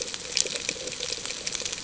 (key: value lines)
label: ambient
recorder: HydroMoth